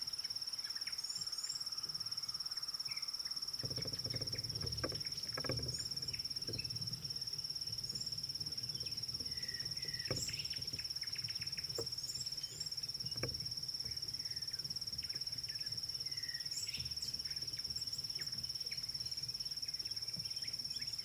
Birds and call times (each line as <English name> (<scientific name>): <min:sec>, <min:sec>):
Red-cheeked Cordonbleu (Uraeginthus bengalus): 0:01.2
African Bare-eyed Thrush (Turdus tephronotus): 0:16.4